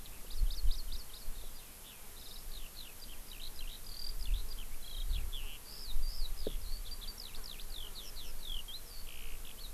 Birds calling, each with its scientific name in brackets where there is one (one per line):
Hawaii Amakihi (Chlorodrepanis virens)
Eurasian Skylark (Alauda arvensis)